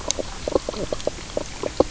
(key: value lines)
label: biophony, knock croak
recorder: SoundTrap 300